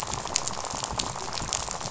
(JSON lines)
{"label": "biophony, rattle", "recorder": "SoundTrap 500"}